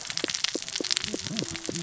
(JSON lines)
{"label": "biophony, cascading saw", "recorder": "SoundTrap 600 or HydroMoth"}